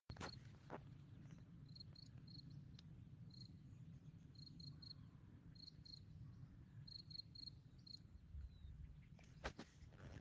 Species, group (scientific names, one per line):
Gryllus campestris
Orthoptera